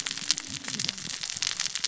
{"label": "biophony, cascading saw", "recorder": "SoundTrap 600 or HydroMoth"}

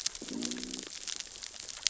{"label": "biophony, growl", "recorder": "SoundTrap 600 or HydroMoth"}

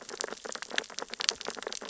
{"label": "biophony, sea urchins (Echinidae)", "recorder": "SoundTrap 600 or HydroMoth"}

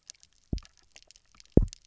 {"label": "biophony, double pulse", "recorder": "SoundTrap 300"}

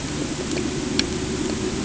{"label": "anthrophony, boat engine", "recorder": "HydroMoth"}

